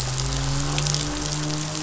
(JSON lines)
{"label": "anthrophony, boat engine", "recorder": "SoundTrap 500"}